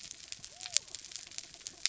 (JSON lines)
{"label": "biophony", "recorder": "SoundTrap 300"}